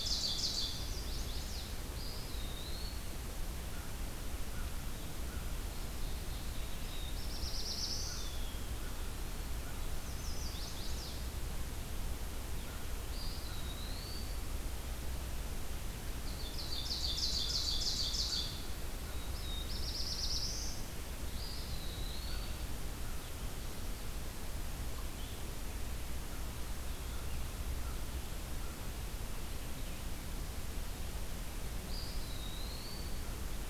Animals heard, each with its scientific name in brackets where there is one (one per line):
Ovenbird (Seiurus aurocapilla)
Chestnut-sided Warbler (Setophaga pensylvanica)
American Crow (Corvus brachyrhynchos)
Eastern Wood-Pewee (Contopus virens)
Black-throated Blue Warbler (Setophaga caerulescens)